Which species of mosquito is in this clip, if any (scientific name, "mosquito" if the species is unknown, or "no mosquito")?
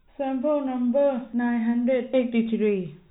no mosquito